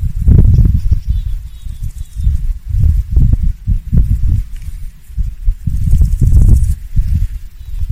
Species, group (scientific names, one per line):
Chrysochraon dispar
Orthoptera